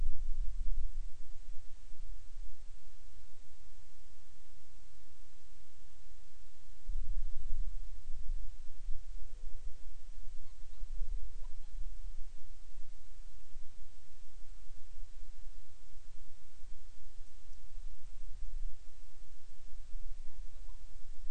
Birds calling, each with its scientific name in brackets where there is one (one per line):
Hawaiian Petrel (Pterodroma sandwichensis)